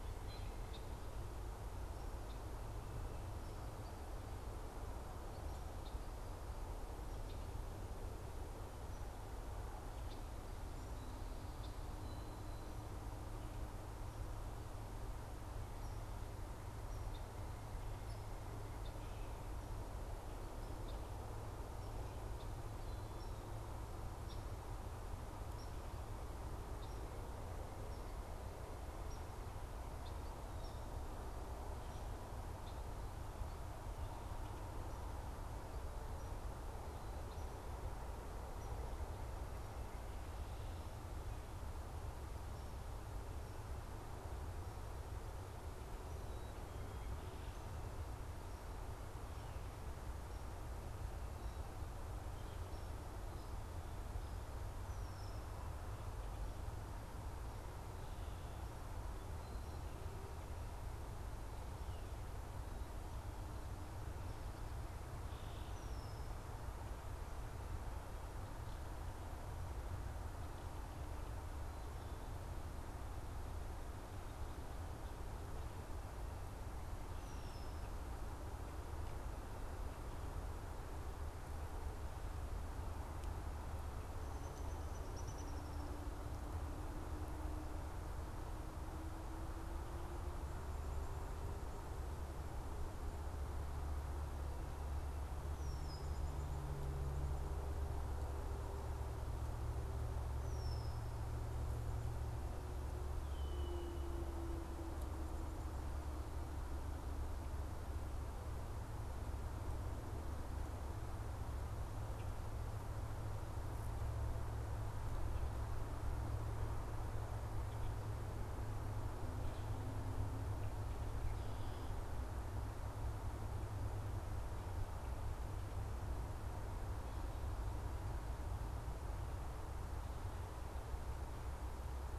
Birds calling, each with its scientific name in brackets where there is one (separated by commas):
Red-winged Blackbird (Agelaius phoeniceus), Downy Woodpecker (Dryobates pubescens), unidentified bird